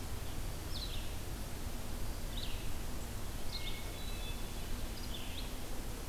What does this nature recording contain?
Red-eyed Vireo, Hermit Thrush